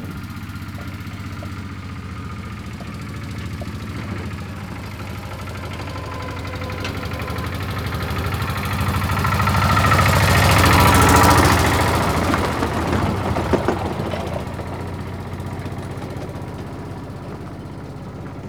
does the engine get louder and then fade?
yes